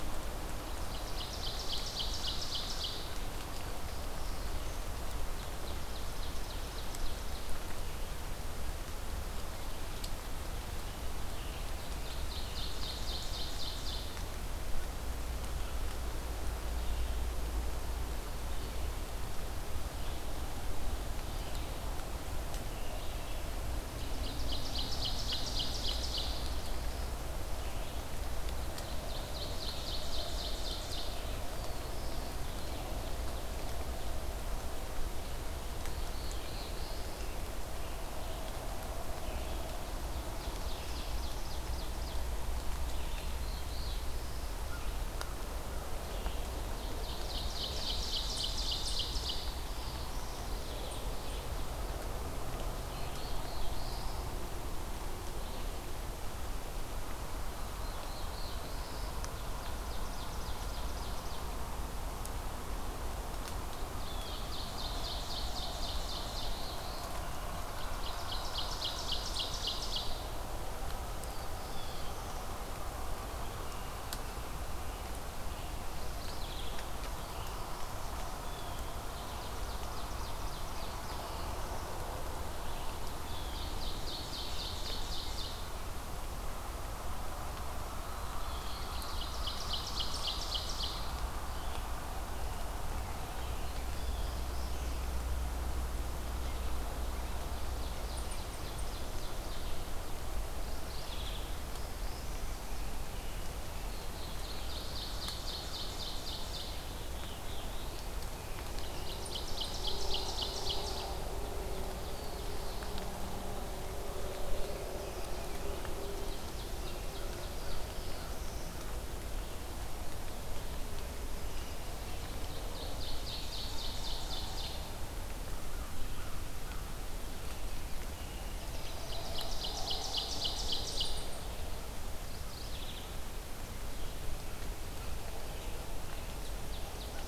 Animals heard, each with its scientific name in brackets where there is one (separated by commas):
American Crow (Corvus brachyrhynchos), Ovenbird (Seiurus aurocapilla), Blue Jay (Cyanocitta cristata), Mourning Warbler (Geothlypis philadelphia), Red-eyed Vireo (Vireo olivaceus), Black-throated Blue Warbler (Setophaga caerulescens), American Robin (Turdus migratorius)